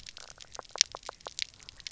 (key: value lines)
label: biophony, knock croak
recorder: SoundTrap 300